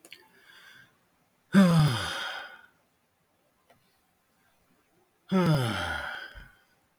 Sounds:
Sigh